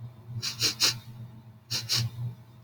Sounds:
Sniff